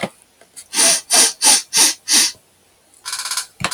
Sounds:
Sniff